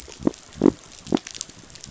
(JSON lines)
{"label": "biophony", "recorder": "SoundTrap 500"}